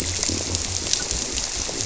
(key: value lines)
label: biophony
recorder: SoundTrap 300